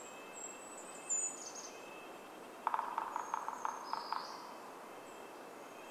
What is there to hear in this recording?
Golden-crowned Kinglet song, Red-breasted Nuthatch song, Red-breasted Nuthatch call, Brown Creeper song, woodpecker drumming